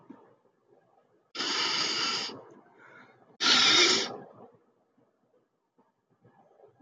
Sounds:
Sniff